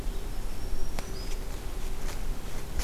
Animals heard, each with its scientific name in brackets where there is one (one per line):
Black-throated Green Warbler (Setophaga virens)